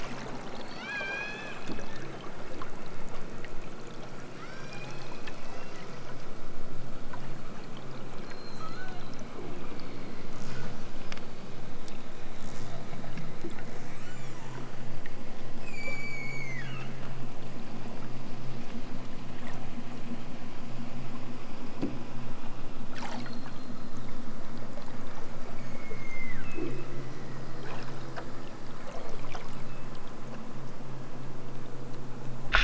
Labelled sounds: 0.5	1.8	killer whale, southern Alaska resident, 1.1 to 8.0 kHz
4.3	5.3	killer whale, southern Alaska resident, 1.0 to 7.0 kHz
8.2	9.2	killer whale, southern Alaska resident, 0.92 to 8.0 kHz
15.6	17.0	killer whale, southern Alaska resident, 0.97 to 8.0 kHz
25.6	26.9	killer whale, southern Alaska resident, 0.88 to 8.0 kHz
28.8	30.0	killer whale, southern Alaska resident, 2.1 to 5.1 kHz

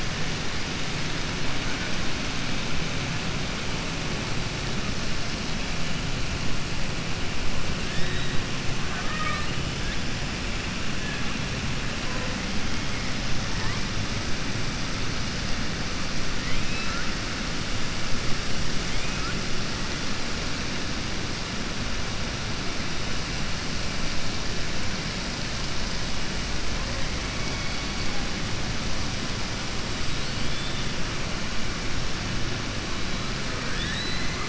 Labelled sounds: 8.8	9.5	killer whale, southern resident, 0.63 to 4.1 kHz
16.4	17.1	killer whale, southern resident, 1.2 to 4.2 kHz
30.1	30.8	killer whale, southern resident, 2.9 to 4.5 kHz
33.5	34.4	killer whale, southern resident, 1.2 to 4.2 kHz

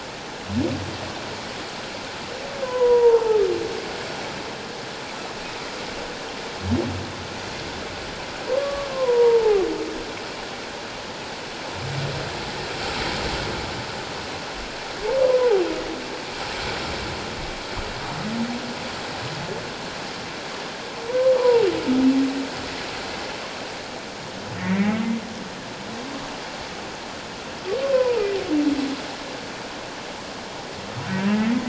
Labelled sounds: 2.6	3.4	humpback whale, 0.78 to 1.1 kHz
8.6	9.6	humpback whale, 0.78 to 1.2 kHz
21.1	21.7	humpback whale, 0.84 to 1.1 kHz
24.6	25.0	humpback whale, 1.8 to 2.3 kHz
27.9	28.2	humpback whale, 0.81 to 1.1 kHz
31.0	31.3	humpback whale, 1.4 to 1.6 kHz

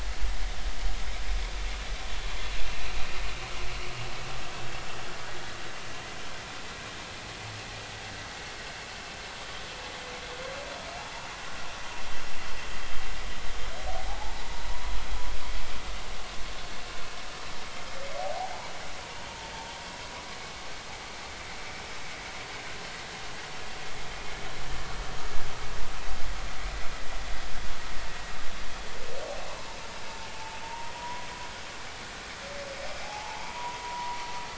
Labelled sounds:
14.1	15.0	humpback whale, 0.80 to 1.1 kHz
18.3	18.7	humpback whale, 0.80 to 1.0 kHz
30.3	31.3	humpback whale, 0.83 to 1.1 kHz
33.0	34.2	humpback whale, 0.80 to 1.2 kHz

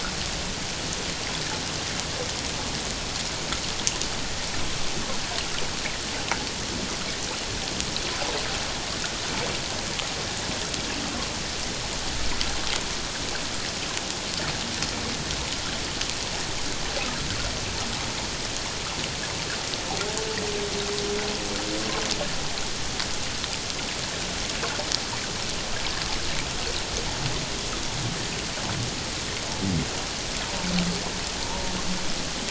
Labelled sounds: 31.4	31.7	humpback whale, 0.84 to 1.0 kHz

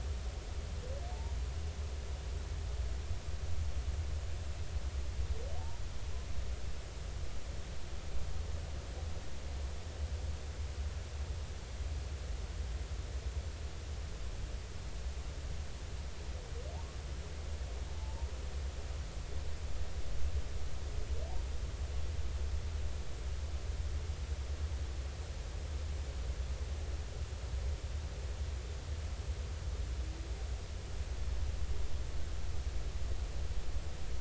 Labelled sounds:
17.9	18.3	humpback whale, 0.83 to 1.0 kHz

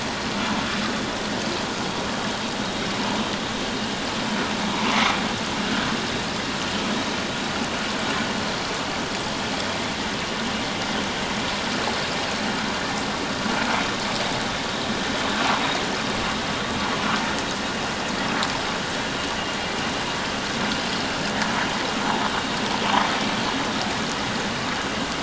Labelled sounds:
4.7	5.0	vessel noise, 0.88 to 1.1 kHz

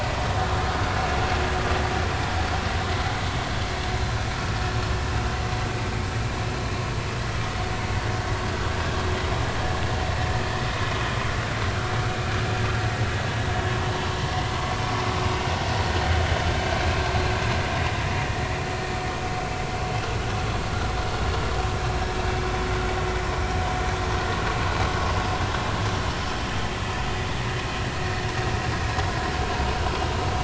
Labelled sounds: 21.8	22.0	vessel noise, 4.0 to 4.2 kHz

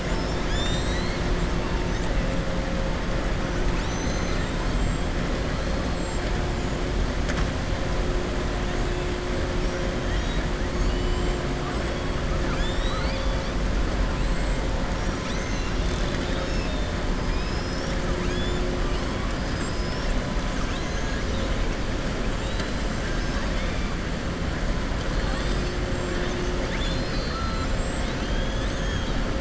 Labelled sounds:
3.6	4.5	killer whale, southern resident, 1.4 to 7.5 kHz
12.4	13.5	killer whale, southern resident, 1.2 to 7.5 kHz
17.2	18.0	killer whale, southern resident, 4.3 to 6.5 kHz
20.5	21.4	killer whale, southern resident, 5.1 to 6.9 kHz
26.6	27.7	killer whale, southern resident, 1.9 to 7.1 kHz
28.0	28.7	killer whale, southern resident, 2.6 to 4.1 kHz

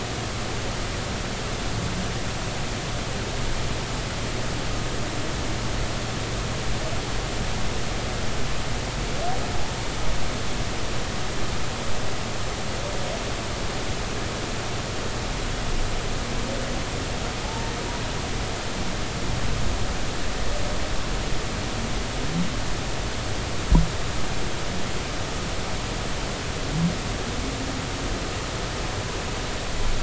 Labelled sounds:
17.4	17.8	humpback whale, 0.80 to 0.96 kHz

